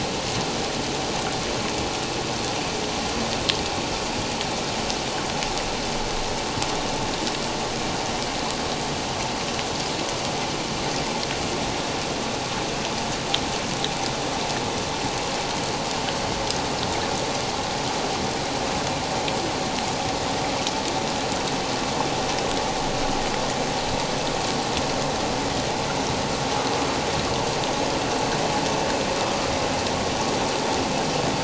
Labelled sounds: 29.2	29.5	vessel noise, 1.2 to 1.3 kHz

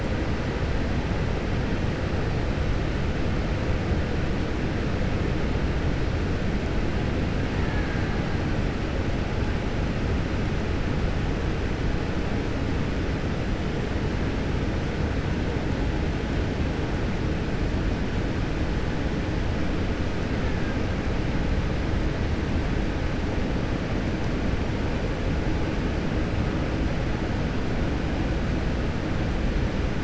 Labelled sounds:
7.5	8.1	killer whale, Bigg's (transient), 0.84 to 2.3 kHz

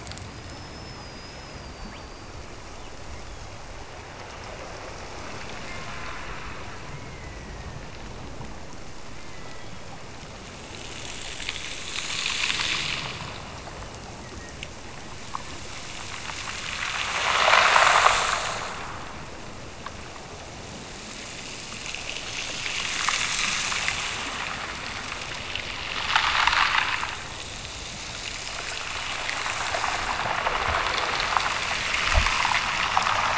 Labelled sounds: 5.6	6.4	killer whale, Bigg's (transient), Gulf of Alaska transient, 0.91 to 2.3 kHz
6.9	7.9	killer whale, Bigg's (transient), Gulf of Alaska transient, 1.7 to 2.3 kHz
9.1	9.9	killer whale, Bigg's (transient), Gulf of Alaska transient, 1.0 to 3.6 kHz
13.7	14.6	killer whale, Bigg's (transient), Gulf of Alaska transient, 1.7 to 3.1 kHz

